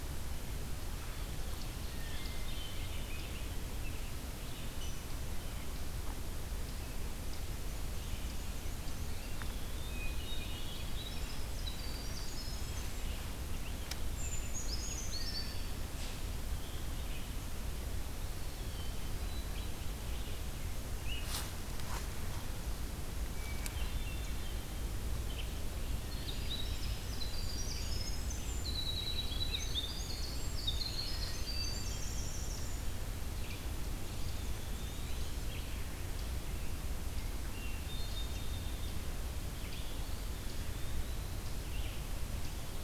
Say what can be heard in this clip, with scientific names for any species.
Catharus guttatus, Turdus migratorius, Mniotilta varia, Contopus virens, Troglodytes hiemalis, Certhia americana, Seiurus aurocapilla, Vireo olivaceus